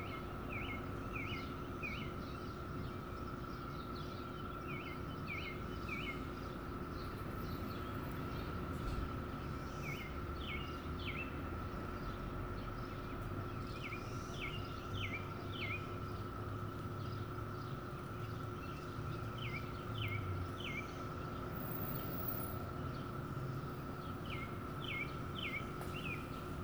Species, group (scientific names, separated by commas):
Magicicada septendecim, Cicadidae